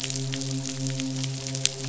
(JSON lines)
{"label": "biophony, midshipman", "recorder": "SoundTrap 500"}